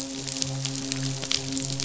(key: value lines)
label: biophony, midshipman
recorder: SoundTrap 500